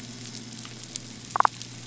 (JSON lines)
{"label": "anthrophony, boat engine", "recorder": "SoundTrap 500"}
{"label": "biophony, damselfish", "recorder": "SoundTrap 500"}